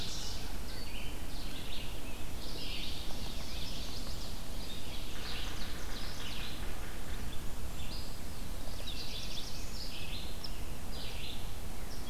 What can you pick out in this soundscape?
Ovenbird, Red-eyed Vireo, Chestnut-sided Warbler, Golden-crowned Kinglet, Black-throated Blue Warbler